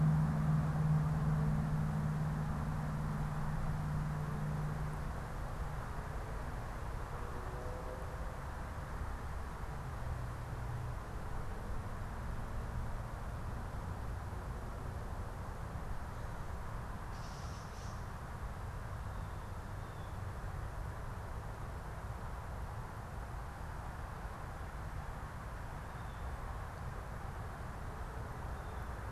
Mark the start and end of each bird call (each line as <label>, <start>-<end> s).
Gray Catbird (Dumetella carolinensis), 16.9-18.1 s